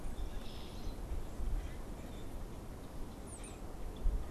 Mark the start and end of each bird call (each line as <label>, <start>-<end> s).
Red-winged Blackbird (Agelaius phoeniceus), 0.0-4.3 s
Brown-headed Cowbird (Molothrus ater), 3.0-3.8 s